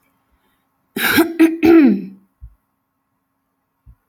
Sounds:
Throat clearing